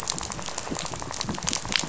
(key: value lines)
label: biophony, rattle
recorder: SoundTrap 500